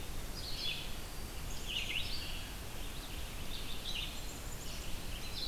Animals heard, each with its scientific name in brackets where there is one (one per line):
Black-throated Green Warbler (Setophaga virens)
Black-capped Chickadee (Poecile atricapillus)
Red-eyed Vireo (Vireo olivaceus)